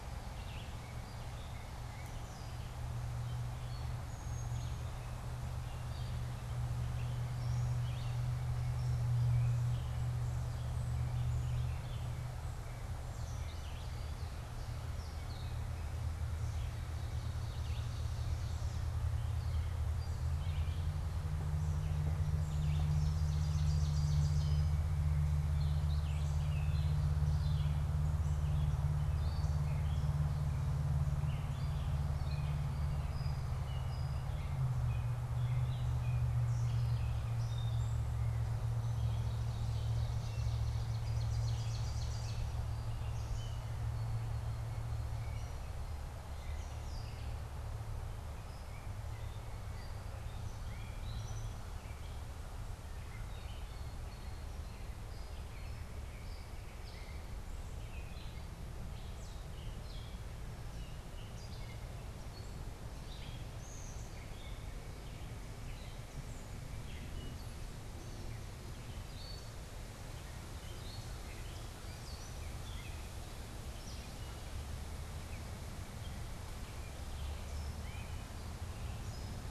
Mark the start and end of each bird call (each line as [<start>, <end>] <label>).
[0.00, 79.50] Gray Catbird (Dumetella carolinensis)
[0.33, 4.93] Red-eyed Vireo (Vireo olivaceus)
[7.73, 8.23] Red-eyed Vireo (Vireo olivaceus)
[13.33, 14.03] Red-eyed Vireo (Vireo olivaceus)
[16.33, 19.03] Ovenbird (Seiurus aurocapilla)
[17.53, 26.43] Red-eyed Vireo (Vireo olivaceus)
[22.43, 24.93] Ovenbird (Seiurus aurocapilla)
[38.63, 42.63] Ovenbird (Seiurus aurocapilla)
[64.33, 67.23] White-breasted Nuthatch (Sitta carolinensis)